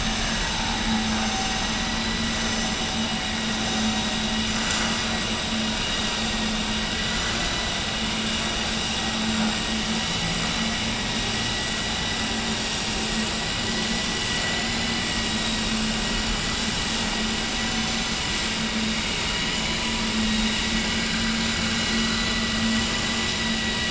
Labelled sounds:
14.3	14.9	vessel noise, 1.9 to 4.0 kHz

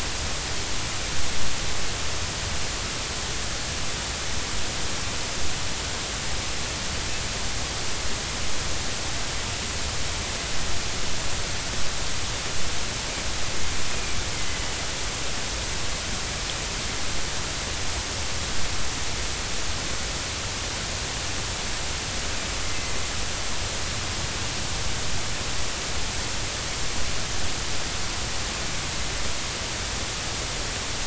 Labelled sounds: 13.9	14.6	killer whale, northern resident, A clan, AA subclan, 2.0 to 2.6 kHz
22.6	22.9	killer whale, northern resident, A clan, AA subclan, 2.0 to 2.1 kHz

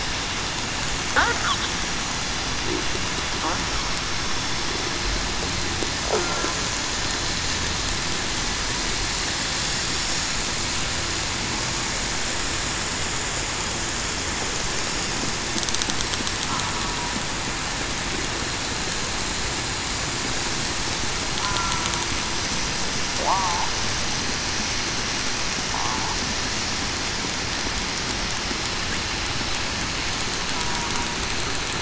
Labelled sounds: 6.2	6.5	killer whale, southern resident, 1.3 to 1.4 kHz
21.4	21.8	killer whale, southern resident, 1.3 to 1.4 kHz
23.2	23.7	killer whale, southern resident, 0.66 to 1.0 kHz

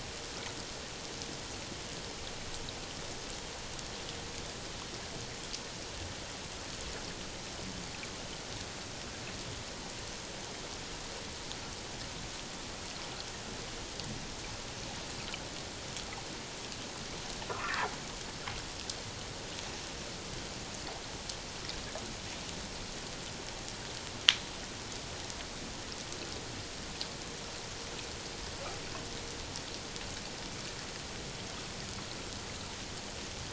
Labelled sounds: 17.5	17.9	humpback whale, 0.84 to 1.9 kHz

